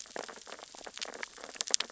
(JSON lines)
{"label": "biophony, sea urchins (Echinidae)", "recorder": "SoundTrap 600 or HydroMoth"}